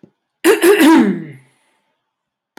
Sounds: Throat clearing